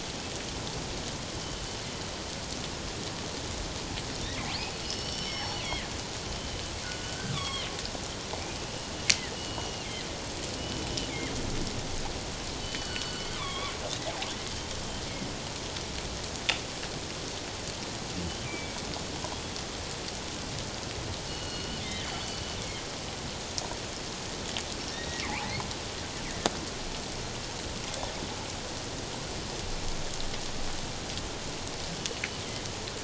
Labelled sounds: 1.3	1.6	killer whale, northern resident, G clan, 3.0 to 3.1 kHz
4.8	5.9	killer whale, northern resident, G clan, 1.6 to 5.6 kHz
6.3	7.7	killer whale, northern resident, G clan, 1.0 to 3.7 kHz
9.1	9.9	killer whale, northern resident, G clan, 1.7 to 3.0 kHz
10.6	10.9	killer whale, northern resident, G clan, 2.8 to 3.0 kHz
12.6	13.7	killer whale, northern resident, G clan, 0.97 to 4.5 kHz
18.5	18.9	killer whale, northern resident, G clan, 2.2 to 2.5 kHz
21.3	22.4	killer whale, northern resident, G clan, 2.8 to 4.6 kHz
24.9	25.2	killer whale, northern resident, G clan, 1.8 to 2.0 kHz

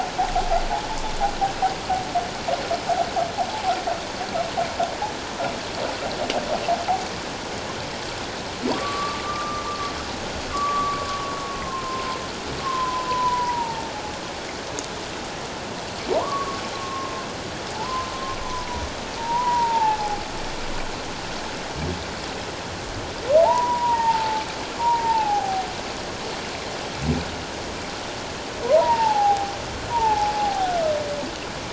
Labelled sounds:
3.5	3.8	humpback whale, 0.78 to 0.94 kHz
8.7	9.6	humpback whale, 1.1 to 1.3 kHz
10.5	12.2	humpback whale, 0.88 to 1.2 kHz
12.6	13.9	humpback whale, 0.81 to 1.1 kHz
16.1	17.3	humpback whale, 0.88 to 1.2 kHz
17.7	18.1	humpback whale, 0.84 to 1.1 kHz
19.2	20.2	humpback whale, 0.78 to 1.0 kHz
23.4	25.7	humpback whale, 0.78 to 1.0 kHz
28.6	29.5	humpback whale, 0.78 to 1.9 kHz
29.9	30.7	humpback whale, 0.78 to 1.0 kHz

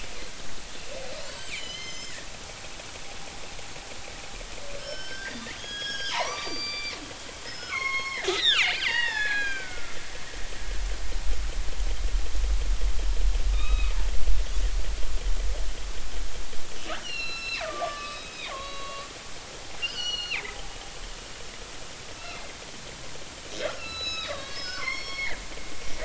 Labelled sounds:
1.2	2.3	killer whale, northern resident, G clan, 1.7 to 7.4 kHz
4.8	7.0	killer whale, northern resident, G clan, 0.80 to 6.7 kHz
7.5	10.5	killer whale, northern resident, G clan, 0.80 to 5.7 kHz
13.5	13.9	killer whale, northern resident, G clan, 1.2 to 3.9 kHz
17.0	19.1	killer whale, northern resident, G clan, 0.99 to 5.9 kHz
19.8	20.6	killer whale, northern resident, G clan, 1.3 to 6.1 kHz
22.2	22.5	killer whale, northern resident, G clan, 2.0 to 2.8 kHz
23.7	25.4	killer whale, northern resident, G clan, 0.99 to 6.7 kHz

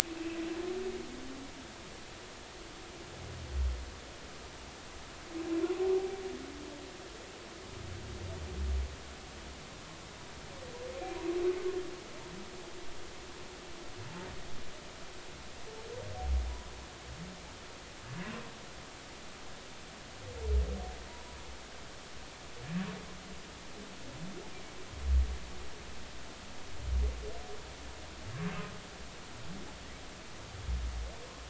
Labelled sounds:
5.6	6.2	humpback whale, 0.80 to 1.2 kHz
16.5	16.7	humpback whale, 0.93 to 1.0 kHz

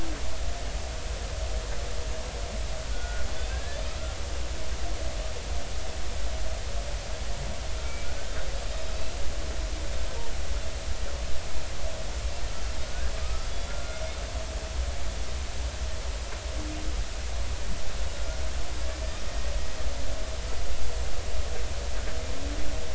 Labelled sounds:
2.9	3.8	humpback whale, 1.4 to 1.8 kHz
8.0	9.2	humpback whale, 1.4 to 4.1 kHz
12.9	14.0	humpback whale, 1.2 to 4.9 kHz

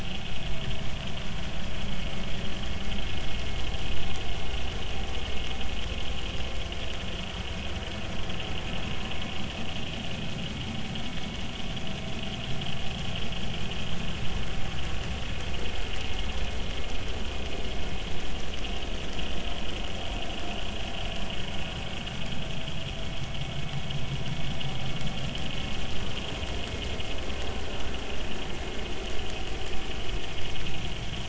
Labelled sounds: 27.5	27.7	vessel noise, 1.4 to 1.5 kHz

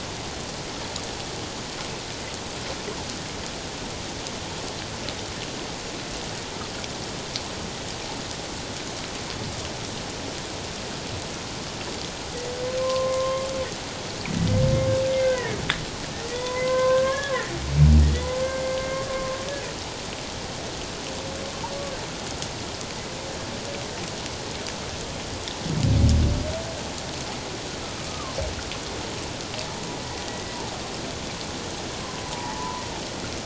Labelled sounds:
12.8	13.5	humpback whale, 0.97 to 1.2 kHz
14.3	14.5	humpback whale, 1.9 to 2.0 kHz
15.3	15.6	humpback whale, 1.7 to 2.1 kHz
16.3	17.5	humpback whale, 0.94 to 2.1 kHz
18.4	19.3	humpback whale, 1.0 to 2.2 kHz
28.0	28.4	humpback whale, 1.0 to 1.3 kHz
30.3	30.6	humpback whale, 1.9 to 2.0 kHz
32.3	32.8	humpback whale, 0.81 to 1.1 kHz

